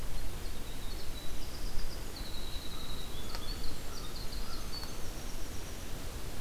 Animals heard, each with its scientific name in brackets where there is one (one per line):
American Crow (Corvus brachyrhynchos)
Winter Wren (Troglodytes hiemalis)